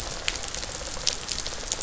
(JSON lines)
{"label": "biophony, rattle response", "recorder": "SoundTrap 500"}